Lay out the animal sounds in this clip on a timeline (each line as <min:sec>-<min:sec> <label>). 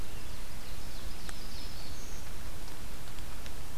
0:00.0-0:02.1 Ovenbird (Seiurus aurocapilla)
0:01.3-0:02.3 Black-throated Green Warbler (Setophaga virens)